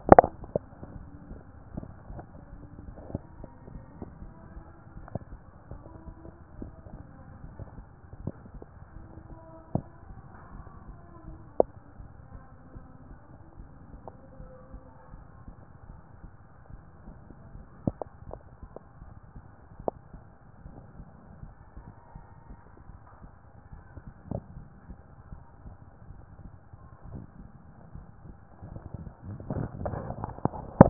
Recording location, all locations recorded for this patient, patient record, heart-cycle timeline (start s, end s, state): mitral valve (MV)
aortic valve (AV)+pulmonary valve (PV)+tricuspid valve (TV)+mitral valve (MV)
#Age: nan
#Sex: Female
#Height: nan
#Weight: nan
#Pregnancy status: True
#Murmur: Absent
#Murmur locations: nan
#Most audible location: nan
#Systolic murmur timing: nan
#Systolic murmur shape: nan
#Systolic murmur grading: nan
#Systolic murmur pitch: nan
#Systolic murmur quality: nan
#Diastolic murmur timing: nan
#Diastolic murmur shape: nan
#Diastolic murmur grading: nan
#Diastolic murmur pitch: nan
#Diastolic murmur quality: nan
#Outcome: Normal
#Campaign: 2014 screening campaign
0.00	10.33	unannotated
10.33	10.54	diastole
10.54	10.66	S1
10.66	10.86	systole
10.86	10.96	S2
10.96	11.28	diastole
11.28	11.40	S1
11.40	11.58	systole
11.58	11.70	S2
11.70	12.00	diastole
12.00	12.10	S1
12.10	12.32	systole
12.32	12.42	S2
12.42	12.74	diastole
12.74	12.86	S1
12.86	13.06	systole
13.06	13.16	S2
13.16	13.58	diastole
13.58	13.70	S1
13.70	13.90	systole
13.90	14.00	S2
14.00	14.40	diastole
14.40	14.50	S1
14.50	14.72	systole
14.72	14.82	S2
14.82	15.12	diastole
15.12	15.24	S1
15.24	15.46	systole
15.46	15.54	S2
15.54	15.88	diastole
15.88	15.98	S1
15.98	16.20	systole
16.20	16.30	S2
16.30	16.72	diastole
16.72	16.82	S1
16.82	17.04	systole
17.04	17.14	S2
17.14	17.54	diastole
17.54	17.66	S1
17.66	30.90	unannotated